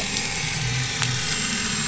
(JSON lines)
{"label": "anthrophony, boat engine", "recorder": "SoundTrap 500"}